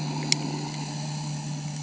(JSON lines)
{"label": "anthrophony, boat engine", "recorder": "HydroMoth"}